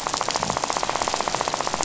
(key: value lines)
label: biophony, rattle
recorder: SoundTrap 500